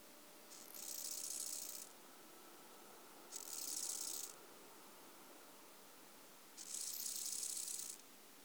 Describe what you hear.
Chorthippus eisentrauti, an orthopteran